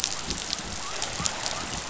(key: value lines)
label: biophony
recorder: SoundTrap 500